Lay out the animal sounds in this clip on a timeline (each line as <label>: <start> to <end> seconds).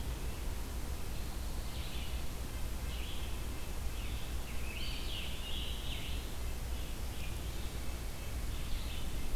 Red-eyed Vireo (Vireo olivaceus): 0.0 to 9.4 seconds
Red-breasted Nuthatch (Sitta canadensis): 2.5 to 4.7 seconds
Eastern Wood-Pewee (Contopus virens): 4.5 to 6.2 seconds
Red-breasted Nuthatch (Sitta canadensis): 7.6 to 9.4 seconds